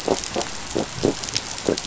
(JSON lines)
{"label": "biophony", "recorder": "SoundTrap 500"}